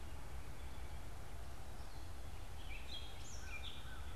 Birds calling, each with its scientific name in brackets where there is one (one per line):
Gray Catbird (Dumetella carolinensis)